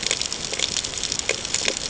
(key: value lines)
label: ambient
recorder: HydroMoth